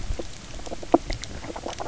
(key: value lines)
label: biophony, knock croak
recorder: SoundTrap 300